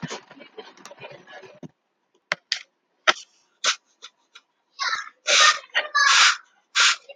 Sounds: Sneeze